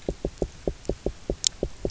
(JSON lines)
{"label": "biophony, knock", "recorder": "SoundTrap 300"}